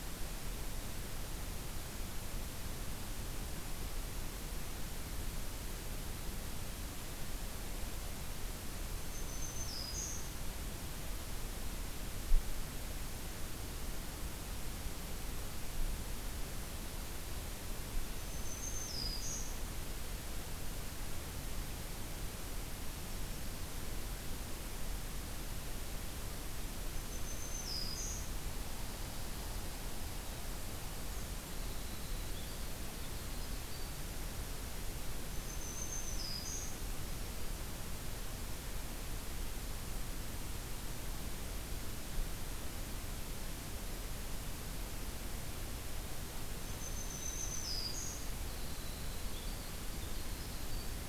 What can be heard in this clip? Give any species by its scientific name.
Setophaga virens, Troglodytes hiemalis